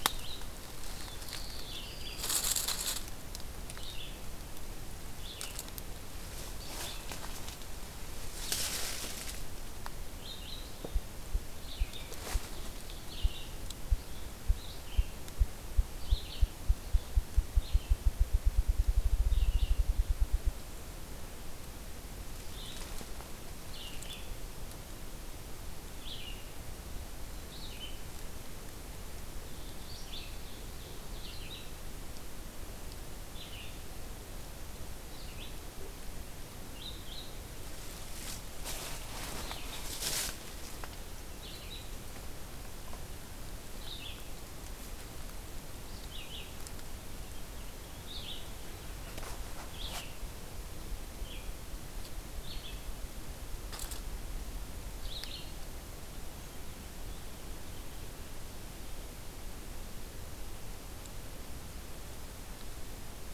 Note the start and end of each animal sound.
[0.00, 52.83] Red-eyed Vireo (Vireo olivaceus)
[0.71, 2.69] Black-throated Blue Warbler (Setophaga caerulescens)
[29.33, 31.23] Ovenbird (Seiurus aurocapilla)
[54.83, 55.83] Red-eyed Vireo (Vireo olivaceus)

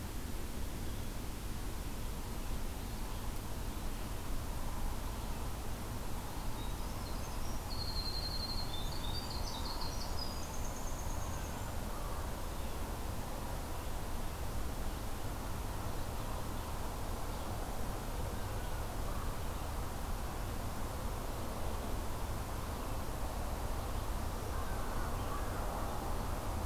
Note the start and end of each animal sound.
[6.55, 11.72] Winter Wren (Troglodytes hiemalis)

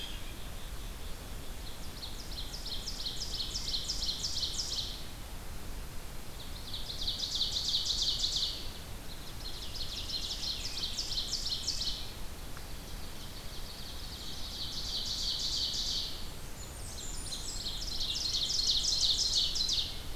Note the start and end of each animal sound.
[0.00, 1.63] White-breasted Nuthatch (Sitta carolinensis)
[1.58, 5.23] Ovenbird (Seiurus aurocapilla)
[6.26, 8.73] Ovenbird (Seiurus aurocapilla)
[9.01, 12.09] Ovenbird (Seiurus aurocapilla)
[12.79, 20.03] Ovenbird (Seiurus aurocapilla)
[16.39, 17.93] Blackburnian Warbler (Setophaga fusca)

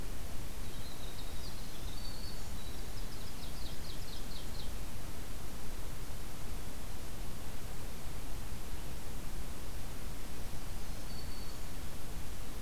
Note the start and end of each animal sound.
[0.49, 3.61] Winter Wren (Troglodytes hiemalis)
[1.57, 2.57] Black-throated Green Warbler (Setophaga virens)
[3.01, 4.72] Ovenbird (Seiurus aurocapilla)
[10.56, 11.78] Black-throated Green Warbler (Setophaga virens)

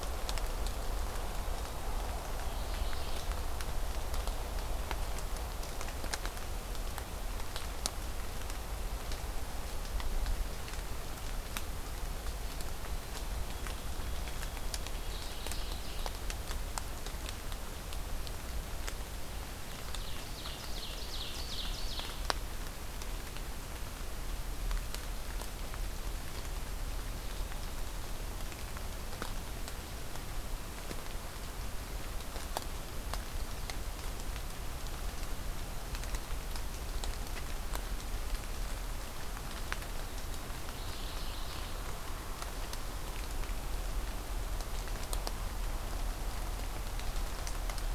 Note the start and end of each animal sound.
[1.28, 2.24] White-throated Sparrow (Zonotrichia albicollis)
[2.20, 3.31] Mourning Warbler (Geothlypis philadelphia)
[11.89, 15.64] White-throated Sparrow (Zonotrichia albicollis)
[14.78, 16.17] Mourning Warbler (Geothlypis philadelphia)
[19.26, 22.31] Ovenbird (Seiurus aurocapilla)
[40.47, 41.81] Mourning Warbler (Geothlypis philadelphia)

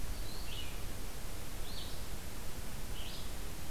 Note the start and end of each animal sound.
[0.00, 3.70] Red-eyed Vireo (Vireo olivaceus)

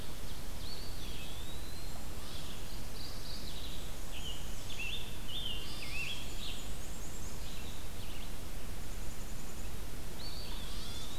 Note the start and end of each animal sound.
[0.00, 1.08] Ovenbird (Seiurus aurocapilla)
[0.00, 11.19] Red-eyed Vireo (Vireo olivaceus)
[0.34, 2.30] Eastern Wood-Pewee (Contopus virens)
[2.13, 2.54] White-tailed Deer (Odocoileus virginianus)
[2.59, 3.92] Mourning Warbler (Geothlypis philadelphia)
[3.39, 4.97] Black-and-white Warbler (Mniotilta varia)
[3.96, 6.83] Scarlet Tanager (Piranga olivacea)
[5.57, 6.16] White-tailed Deer (Odocoileus virginianus)
[5.65, 7.79] Black-and-white Warbler (Mniotilta varia)
[8.63, 9.69] Dark-eyed Junco (Junco hyemalis)
[9.95, 11.19] Eastern Wood-Pewee (Contopus virens)
[10.39, 11.19] Dark-eyed Junco (Junco hyemalis)
[10.58, 11.13] White-tailed Deer (Odocoileus virginianus)

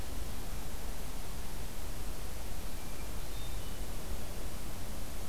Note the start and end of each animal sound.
[2.93, 4.34] Hermit Thrush (Catharus guttatus)

